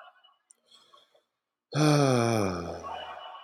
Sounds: Sigh